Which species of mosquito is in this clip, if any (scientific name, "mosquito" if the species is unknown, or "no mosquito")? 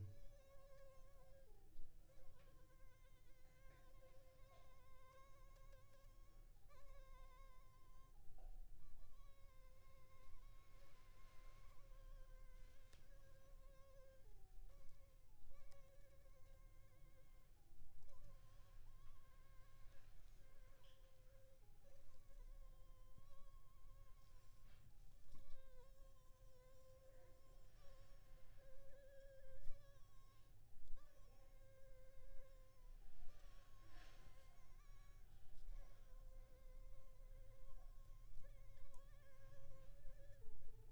Anopheles funestus s.s.